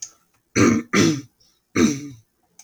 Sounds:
Throat clearing